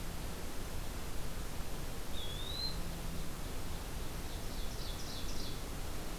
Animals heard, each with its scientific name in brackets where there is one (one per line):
Eastern Wood-Pewee (Contopus virens)
Ovenbird (Seiurus aurocapilla)